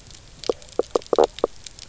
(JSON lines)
{"label": "biophony, knock croak", "recorder": "SoundTrap 300"}